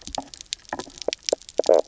{"label": "biophony, knock croak", "recorder": "SoundTrap 300"}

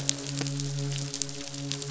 {"label": "biophony, midshipman", "recorder": "SoundTrap 500"}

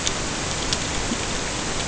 {"label": "ambient", "recorder": "HydroMoth"}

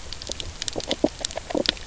{"label": "biophony, knock croak", "recorder": "SoundTrap 300"}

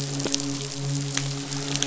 {"label": "biophony, midshipman", "recorder": "SoundTrap 500"}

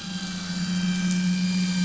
{"label": "anthrophony, boat engine", "recorder": "SoundTrap 500"}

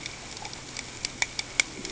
{"label": "ambient", "recorder": "HydroMoth"}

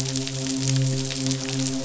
{"label": "biophony, midshipman", "recorder": "SoundTrap 500"}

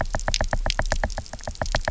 {"label": "biophony, knock", "recorder": "SoundTrap 300"}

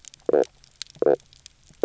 {"label": "biophony, knock croak", "recorder": "SoundTrap 300"}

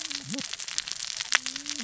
{"label": "biophony, cascading saw", "recorder": "SoundTrap 600 or HydroMoth"}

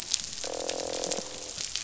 {"label": "biophony, croak", "recorder": "SoundTrap 500"}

